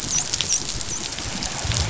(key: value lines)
label: biophony, dolphin
recorder: SoundTrap 500